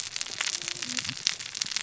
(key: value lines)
label: biophony, cascading saw
recorder: SoundTrap 600 or HydroMoth